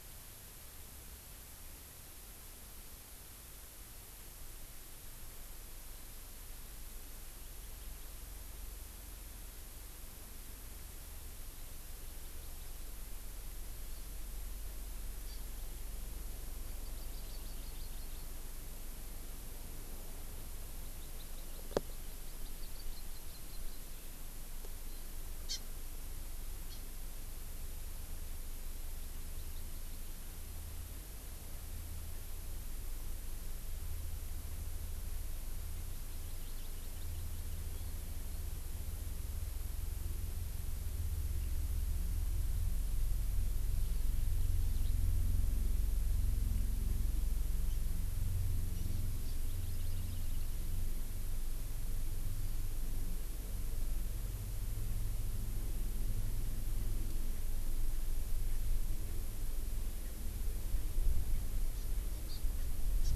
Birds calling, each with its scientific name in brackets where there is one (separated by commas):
Eurasian Skylark (Alauda arvensis), Hawaii Amakihi (Chlorodrepanis virens)